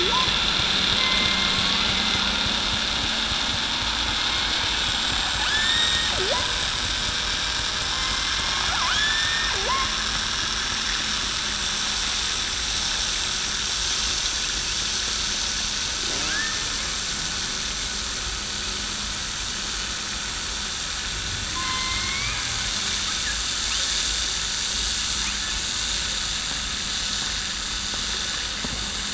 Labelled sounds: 1.0	1.5	killer whale, southern resident, 2.0 to 2.2 kHz
5.5	6.1	killer whale, southern resident, 1.7 to 5.6 kHz
7.9	8.3	killer whale, southern resident, 2.0 to 2.1 kHz
8.9	9.5	killer whale, southern resident, 1.6 to 3.6 kHz
16.3	16.7	killer whale, southern resident, 1.5 to 1.8 kHz
21.5	22.3	killer whale, southern resident, 0.98 to 2.5 kHz

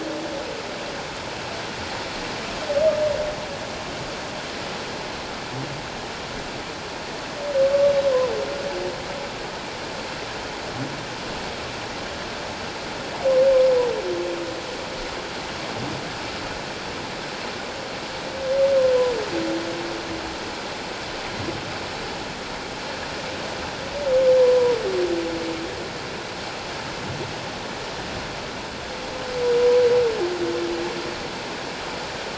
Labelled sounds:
24.4	24.8	humpback whale, 0.94 to 1.0 kHz

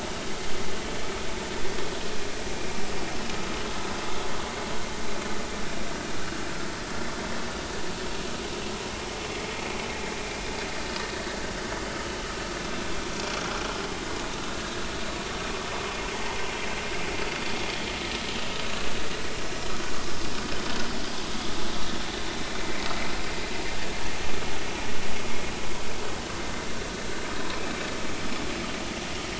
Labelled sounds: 16.1	16.4	vessel noise, 0.83 to 0.99 kHz

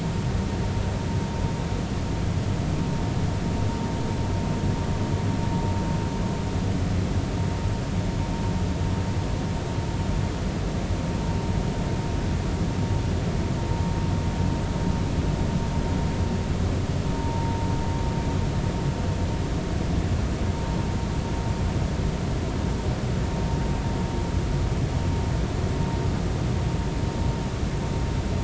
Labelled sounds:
17.1	17.6	vessel noise, 0.86 to 0.99 kHz

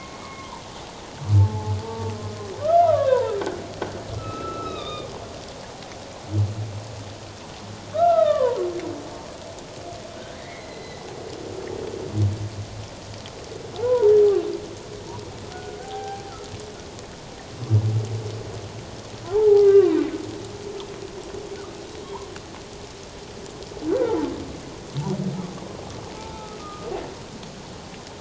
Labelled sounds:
0.1	3.4	humpback whale, 0.81 to 2.3 kHz
4.2	5.1	humpback whale, 1.1 to 3.9 kHz
7.9	8.6	humpback whale, 0.91 to 2.1 kHz
10.2	11.0	humpback whale, 1.4 to 4.1 kHz
13.8	14.1	humpback whale, 0.78 to 1.1 kHz
15.5	16.2	humpback whale, 0.78 to 1.6 kHz
19.3	20.0	humpback whale, 0.78 to 2.1 kHz
22.0	22.3	humpback whale, 0.84 to 1.2 kHz
23.9	24.2	humpback whale, 1.3 to 1.6 kHz
26.2	26.9	humpback whale, 0.81 to 1.4 kHz

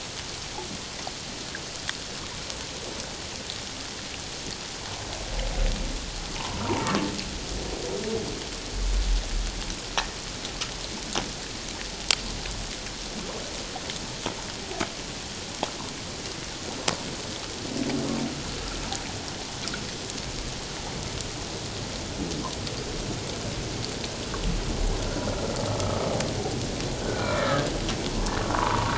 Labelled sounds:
6.4	6.9	humpback whale, 0.78 to 1.1 kHz
25.8	26.1	humpback whale, 1.1 to 1.3 kHz
27.0	27.7	humpback whale, 1.2 to 1.9 kHz

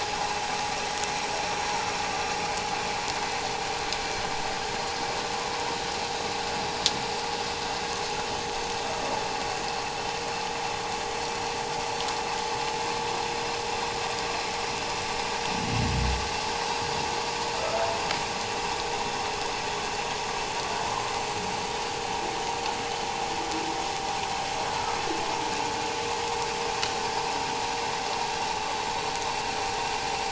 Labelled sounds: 17.5	17.9	humpback whale, 1.2 to 1.5 kHz
20.9	21.1	vessel noise, 0.97 to 1.1 kHz

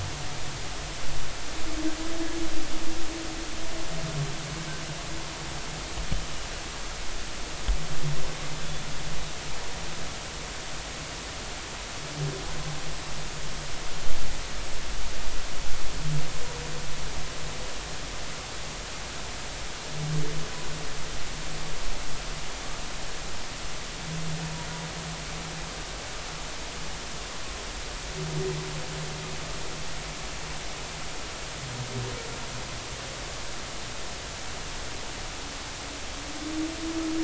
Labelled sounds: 8.6	8.9	humpback whale, 3.4 to 3.5 kHz

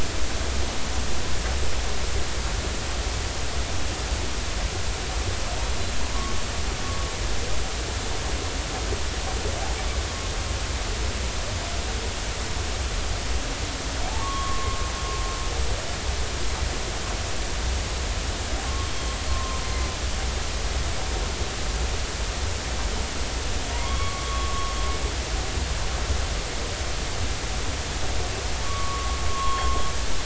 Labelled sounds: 14.1	14.8	humpback whale, 0.80 to 1.2 kHz
19.3	19.6	humpback whale, 0.99 to 1.1 kHz
23.7	24.7	humpback whale, 0.90 to 3.4 kHz
28.6	29.8	humpback whale, 0.93 to 3.3 kHz

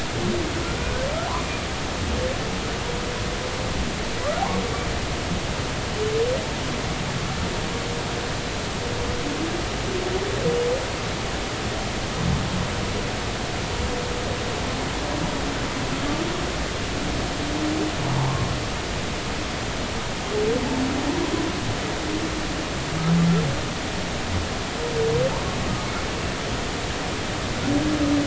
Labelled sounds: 25.8	26.0	humpback whale, 2.1 to 2.2 kHz

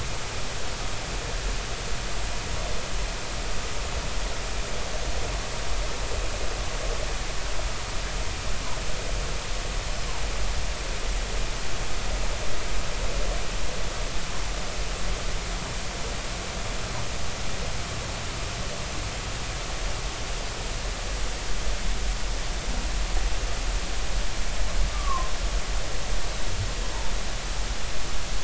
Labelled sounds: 24.9	25.3	humpback whale, 0.93 to 1.3 kHz

